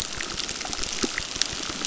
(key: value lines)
label: biophony, crackle
recorder: SoundTrap 600